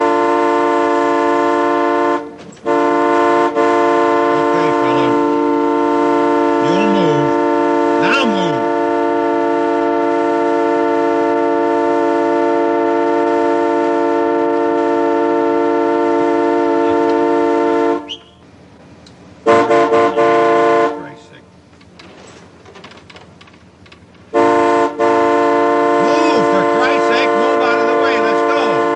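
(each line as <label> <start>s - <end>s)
A car horn sounds. 0.0s - 3.5s
A car horn honks continuously for a long time. 3.6s - 18.1s
A person speaks in an annoyed tone. 4.3s - 5.3s
A person speaks in an annoyed tone. 6.6s - 9.0s
A car honks aggressively four times in quick succession. 19.4s - 21.0s
A car horn sounds. 24.2s - 29.0s
One person tells another to get out of the way. 26.0s - 29.0s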